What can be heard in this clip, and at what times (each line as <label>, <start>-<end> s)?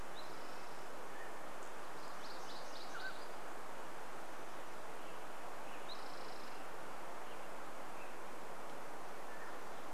Spotted Towhee song, 0-2 s
unidentified bird chip note, 0-2 s
Mountain Quail call, 0-4 s
Red-breasted Nuthatch song, 0-8 s
MacGillivray's Warbler song, 6-8 s
Spotted Towhee song, 6-8 s
Mountain Quail call, 8-10 s